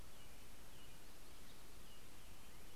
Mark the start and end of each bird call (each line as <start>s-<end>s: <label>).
0.0s-2.8s: American Robin (Turdus migratorius)
0.8s-2.1s: Yellow-rumped Warbler (Setophaga coronata)